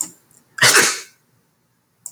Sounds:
Sneeze